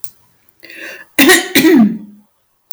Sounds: Throat clearing